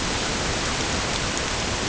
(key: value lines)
label: ambient
recorder: HydroMoth